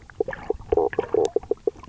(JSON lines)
{"label": "biophony, knock croak", "recorder": "SoundTrap 300"}